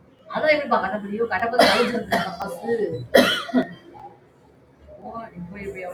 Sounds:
Cough